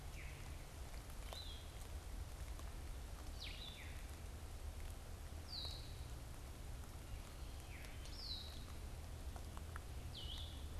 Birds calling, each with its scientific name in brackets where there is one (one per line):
unidentified bird
Blue-headed Vireo (Vireo solitarius)